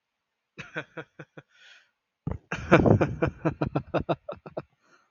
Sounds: Laughter